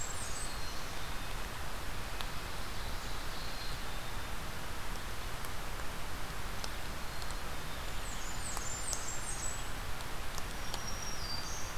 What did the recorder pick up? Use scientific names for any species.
Setophaga fusca, Poecile atricapillus, Seiurus aurocapilla, Setophaga virens